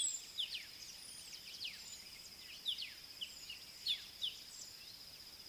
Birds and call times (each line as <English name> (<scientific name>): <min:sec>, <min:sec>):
Southern Black-Flycatcher (Melaenornis pammelaina): 0:00.1
Black-backed Puffback (Dryoscopus cubla): 0:01.7
Scarlet-chested Sunbird (Chalcomitra senegalensis): 0:02.7, 0:04.3